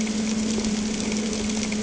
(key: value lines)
label: anthrophony, boat engine
recorder: HydroMoth